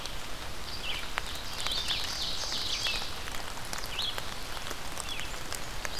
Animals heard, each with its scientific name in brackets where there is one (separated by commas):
Ovenbird (Seiurus aurocapilla), Red-eyed Vireo (Vireo olivaceus)